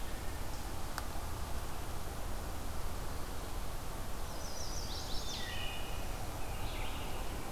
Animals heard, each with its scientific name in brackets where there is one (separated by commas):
Wood Thrush (Hylocichla mustelina), Chestnut-sided Warbler (Setophaga pensylvanica)